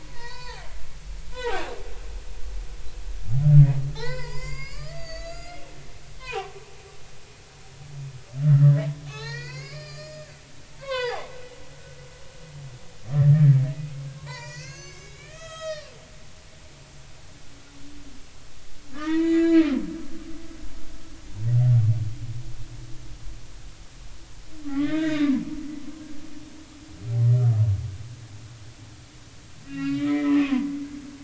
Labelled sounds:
0.1	0.7	humpback whale, 0.80 to 5.1 kHz
1.3	1.6	humpback whale, 0.80 to 3.2 kHz
3.9	5.9	humpback whale, 0.80 to 7.0 kHz
6.2	6.6	humpback whale, 0.80 to 1.2 kHz
8.4	10.3	humpback whale, 0.80 to 7.4 kHz
10.8	11.3	humpback whale, 0.80 to 5.2 kHz
13.1	15.9	humpback whale, 0.83 to 7.9 kHz
18.9	19.8	humpback whale, 0.90 to 7.1 kHz
24.7	25.4	humpback whale, 0.96 to 3.8 kHz
29.6	30.7	humpback whale, 0.93 to 4.0 kHz

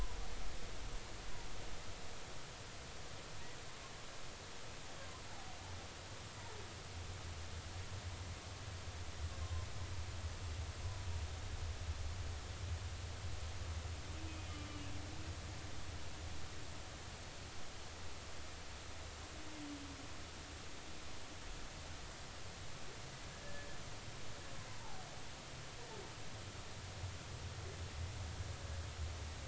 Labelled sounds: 9.4	9.7	humpback whale, 0.99 to 1.1 kHz
10.8	11.1	humpback whale, 0.96 to 1.1 kHz
23.4	23.7	humpback whale, 1.7 to 1.8 kHz
24.7	25.0	humpback whale, 0.80 to 1.1 kHz

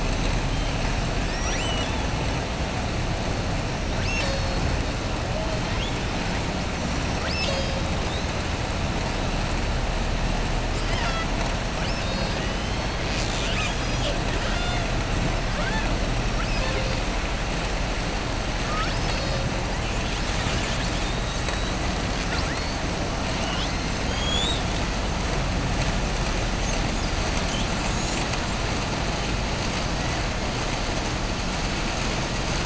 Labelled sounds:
1.2	2.0	killer whale, southern resident, 1.3 to 8.0 kHz
14.3	14.8	killer whale, southern resident, 0.71 to 5.7 kHz
15.5	15.9	killer whale, southern resident, 0.59 to 4.4 kHz
18.6	19.4	killer whale, southern resident, 1.2 to 6.0 kHz

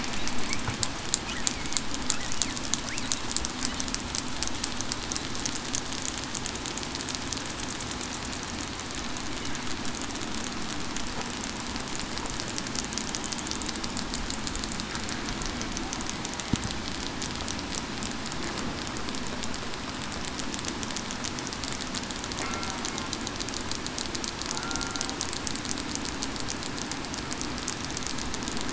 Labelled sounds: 22.4	22.8	killer whale, southern resident, 1.3 to 1.4 kHz
24.6	25.0	killer whale, southern resident, 1.3 to 1.4 kHz

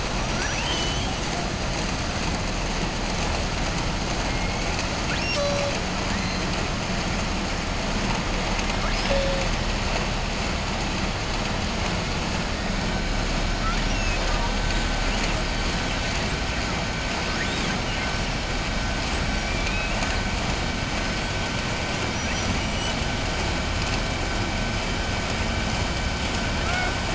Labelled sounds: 0.2	1.1	killer whale, southern resident, 1.1 to 7.9 kHz
17.2	17.8	killer whale, southern resident, 1.1 to 5.1 kHz
19.5	20.2	killer whale, southern resident, 1.1 to 3.9 kHz

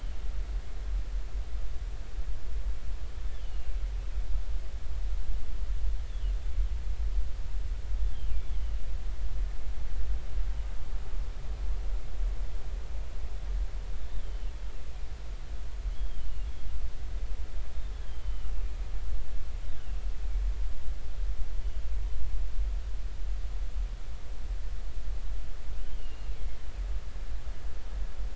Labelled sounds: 3.3	3.7	killer whale, northern resident, G clan, GG subclan, 2.7 to 3.6 kHz
6.1	6.3	killer whale, northern resident, G clan, GG subclan, 2.8 to 3.6 kHz
8.6	8.8	killer whale, northern resident, G clan, GG subclan, 2.8 to 3.1 kHz
14.2	14.5	killer whale, northern resident, G clan, GG subclan, 3.0 to 3.3 kHz
15.9	16.2	killer whale, northern resident, G clan, GG subclan, 3.1 to 3.4 kHz
17.9	18.5	killer whale, northern resident, G clan, GG subclan, 2.8 to 3.6 kHz
26.0	26.4	killer whale, northern resident, G clan, GG subclan, 2.7 to 2.9 kHz

